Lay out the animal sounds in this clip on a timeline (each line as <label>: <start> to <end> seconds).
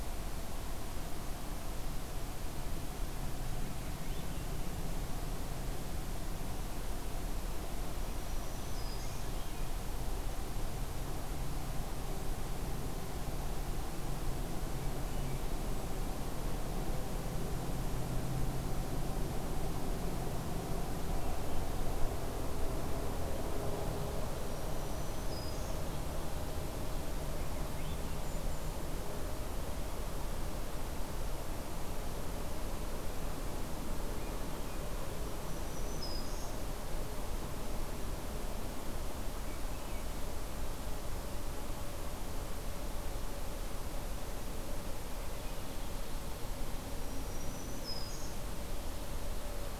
Black-throated Green Warbler (Setophaga virens): 7.9 to 9.3 seconds
Swainson's Thrush (Catharus ustulatus): 14.7 to 15.6 seconds
Black-throated Green Warbler (Setophaga virens): 24.4 to 25.9 seconds
Swainson's Thrush (Catharus ustulatus): 27.2 to 28.1 seconds
Golden-crowned Kinglet (Regulus satrapa): 27.7 to 28.8 seconds
Black-throated Green Warbler (Setophaga virens): 35.3 to 36.6 seconds
Black-throated Green Warbler (Setophaga virens): 47.0 to 48.4 seconds